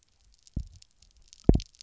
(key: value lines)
label: biophony, double pulse
recorder: SoundTrap 300